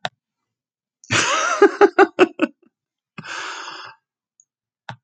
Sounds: Laughter